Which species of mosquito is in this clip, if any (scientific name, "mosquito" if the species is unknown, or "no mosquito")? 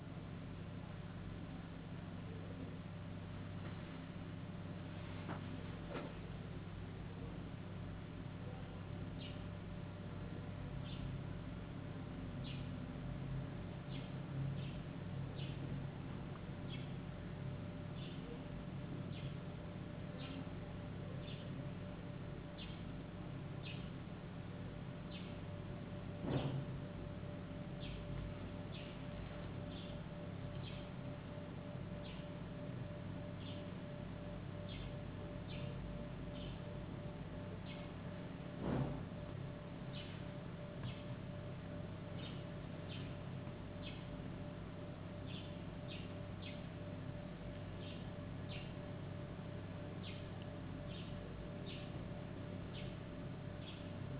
no mosquito